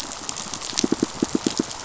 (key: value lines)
label: biophony, pulse
recorder: SoundTrap 500